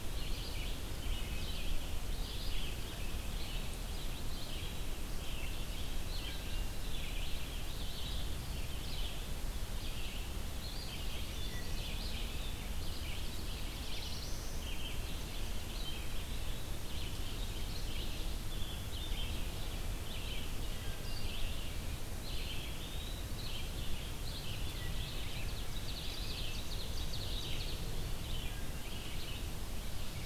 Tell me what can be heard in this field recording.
Red-eyed Vireo, Wood Thrush, Black-throated Blue Warbler, Eastern Wood-Pewee, Ovenbird